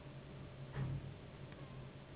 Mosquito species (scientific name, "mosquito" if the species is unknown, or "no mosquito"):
Anopheles gambiae s.s.